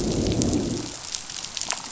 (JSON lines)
{"label": "biophony, growl", "recorder": "SoundTrap 500"}